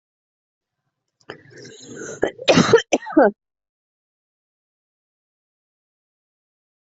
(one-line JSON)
{"expert_labels": [{"quality": "ok", "cough_type": "dry", "dyspnea": false, "wheezing": false, "stridor": false, "choking": false, "congestion": false, "nothing": true, "diagnosis": "upper respiratory tract infection", "severity": "mild"}], "age": 38, "gender": "female", "respiratory_condition": false, "fever_muscle_pain": false, "status": "healthy"}